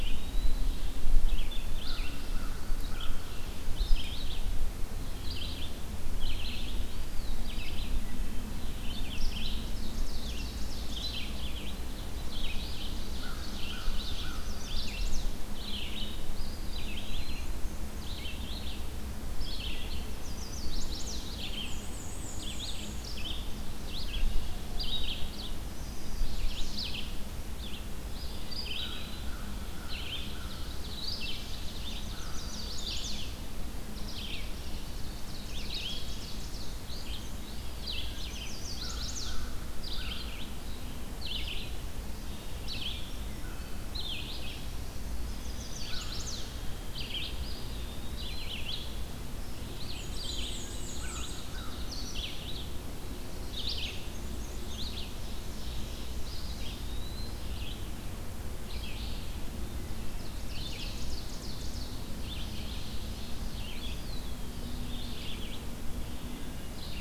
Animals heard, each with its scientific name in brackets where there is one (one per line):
American Crow (Corvus brachyrhynchos)
Ovenbird (Seiurus aurocapilla)
Eastern Wood-Pewee (Contopus virens)
Chestnut-sided Warbler (Setophaga pensylvanica)
Hermit Thrush (Catharus guttatus)
Black-and-white Warbler (Mniotilta varia)
Red-eyed Vireo (Vireo olivaceus)